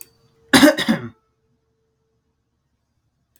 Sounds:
Throat clearing